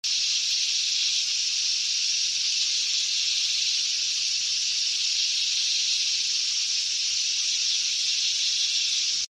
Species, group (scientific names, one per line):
Henicopsaltria eydouxii
Cicadidae